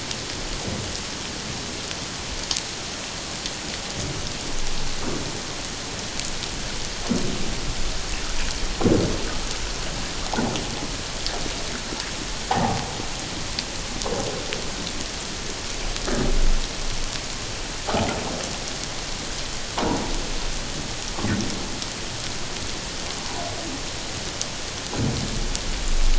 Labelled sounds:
12.5	12.9	humpback whale, 0.78 to 1.0 kHz

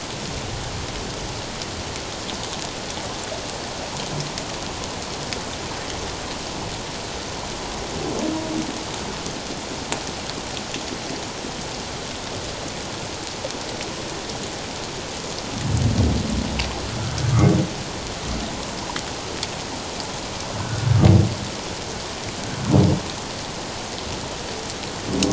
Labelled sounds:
20.6	20.9	humpback whale, 1.4 to 1.6 kHz

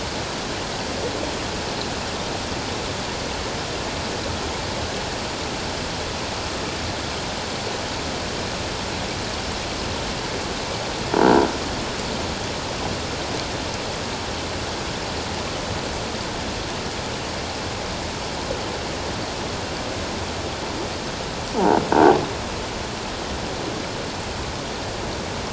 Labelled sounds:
11.2	11.4	croaking sound likely from a nearby submerged object, 1.4 to 1.6 kHz

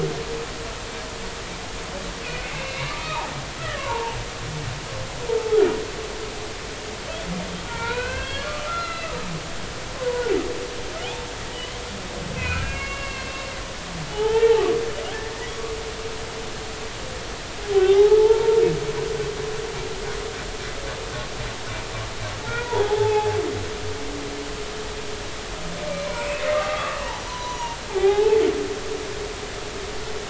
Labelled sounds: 2.4	3.3	humpback whale, 0.80 to 2.9 kHz
3.6	3.9	humpback whale, 1.6 to 2.0 kHz
4.8	5.6	humpback whale, 0.80 to 1.2 kHz
7.7	9.1	humpback whale, 0.86 to 4.5 kHz
9.8	10.1	humpback whale, 2.6 to 2.8 kHz
12.4	13.5	humpback whale, 1.0 to 4.4 kHz
14.1	14.7	humpback whale, 0.80 to 1.9 kHz
17.7	18.6	humpback whale, 0.80 to 3.3 kHz
22.4	23.4	humpback whale, 0.80 to 3.5 kHz
26.1	28.4	humpback whale, 0.80 to 6.1 kHz

